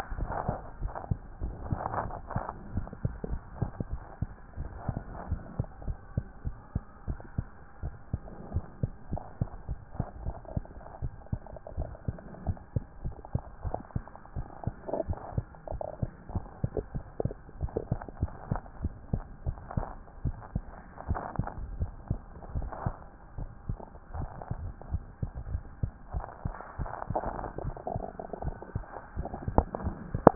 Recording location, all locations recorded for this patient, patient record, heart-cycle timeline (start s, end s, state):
tricuspid valve (TV)
aortic valve (AV)+pulmonary valve (PV)+tricuspid valve (TV)+mitral valve (MV)
#Age: Child
#Sex: Female
#Height: 106.0 cm
#Weight: 17.4 kg
#Pregnancy status: False
#Murmur: Absent
#Murmur locations: nan
#Most audible location: nan
#Systolic murmur timing: nan
#Systolic murmur shape: nan
#Systolic murmur grading: nan
#Systolic murmur pitch: nan
#Systolic murmur quality: nan
#Diastolic murmur timing: nan
#Diastolic murmur shape: nan
#Diastolic murmur grading: nan
#Diastolic murmur pitch: nan
#Diastolic murmur quality: nan
#Outcome: Abnormal
#Campaign: 2014 screening campaign
0.00	0.18	diastole
0.18	0.30	S1
0.30	0.46	systole
0.46	0.56	S2
0.56	0.80	diastole
0.80	0.92	S1
0.92	1.10	systole
1.10	1.18	S2
1.18	1.42	diastole
1.42	1.56	S1
1.56	1.68	systole
1.68	1.80	S2
1.80	2.02	diastole
2.02	2.14	S1
2.14	2.34	systole
2.34	2.44	S2
2.44	2.74	diastole
2.74	2.86	S1
2.86	3.04	systole
3.04	3.14	S2
3.14	3.30	diastole
3.30	3.42	S1
3.42	3.60	systole
3.60	3.70	S2
3.70	3.92	diastole
3.92	4.02	S1
4.02	4.20	systole
4.20	4.24	S2
4.24	4.58	diastole
4.58	4.70	S1
4.70	4.88	systole
4.88	5.00	S2
5.00	5.30	diastole
5.30	5.42	S1
5.42	5.58	systole
5.58	5.66	S2
5.66	5.86	diastole
5.86	5.98	S1
5.98	6.16	systole
6.16	6.26	S2
6.26	6.44	diastole
6.44	6.56	S1
6.56	6.74	systole
6.74	6.82	S2
6.82	7.08	diastole
7.08	7.18	S1
7.18	7.36	systole
7.36	7.46	S2
7.46	7.82	diastole
7.82	7.94	S1
7.94	8.12	systole
8.12	8.20	S2
8.20	8.52	diastole
8.52	8.64	S1
8.64	8.82	systole
8.82	8.92	S2
8.92	9.12	diastole
9.12	9.22	S1
9.22	9.40	systole
9.40	9.50	S2
9.50	9.70	diastole
9.70	9.78	S1
9.78	9.98	systole
9.98	10.06	S2
10.06	10.24	diastole
10.24	10.36	S1
10.36	10.54	systole
10.54	10.64	S2
10.64	11.02	diastole
11.02	11.12	S1
11.12	11.32	systole
11.32	11.40	S2
11.40	11.76	diastole
11.76	11.90	S1
11.90	12.06	systole
12.06	12.16	S2
12.16	12.46	diastole
12.46	12.58	S1
12.58	12.74	systole
12.74	12.84	S2
12.84	13.04	diastole
13.04	13.14	S1
13.14	13.34	systole
13.34	13.42	S2
13.42	13.64	diastole
13.64	13.76	S1
13.76	13.94	systole
13.94	14.04	S2
14.04	14.36	diastole
14.36	14.46	S1
14.46	14.66	systole
14.66	14.74	S2
14.74	15.06	diastole
15.06	15.18	S1
15.18	15.36	systole
15.36	15.46	S2
15.46	15.72	diastole
15.72	15.82	S1
15.82	16.00	systole
16.00	16.10	S2
16.10	16.34	diastole
16.34	16.44	S1
16.44	16.64	systole
16.64	16.72	S2
16.72	16.94	diastole
16.94	17.04	S1
17.04	17.24	systole
17.24	17.34	S2
17.34	17.60	diastole
17.60	17.72	S1
17.72	17.90	systole
17.90	18.00	S2
18.00	18.20	diastole
18.20	18.32	S1
18.32	18.50	systole
18.50	18.60	S2
18.60	18.82	diastole
18.82	18.94	S1
18.94	19.12	systole
19.12	19.24	S2
19.24	19.46	diastole
19.46	19.58	S1
19.58	19.76	systole
19.76	19.86	S2
19.86	20.24	diastole
20.24	20.36	S1
20.36	20.54	systole
20.54	20.64	S2
20.64	21.08	diastole
21.08	21.20	S1
21.20	21.38	systole
21.38	21.48	S2
21.48	21.80	diastole
21.80	21.92	S1
21.92	22.08	systole
22.08	22.20	S2
22.20	22.54	diastole
22.54	22.70	S1
22.70	22.84	systole
22.84	22.94	S2
22.94	23.38	diastole
23.38	23.50	S1
23.50	23.68	systole
23.68	23.78	S2
23.78	24.12	diastole